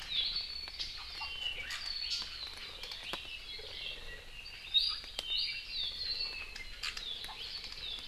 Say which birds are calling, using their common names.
Apapane, Iiwi